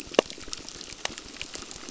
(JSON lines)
{"label": "biophony, crackle", "recorder": "SoundTrap 600"}